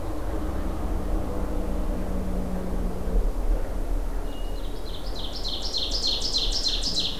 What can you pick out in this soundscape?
Hermit Thrush, Ovenbird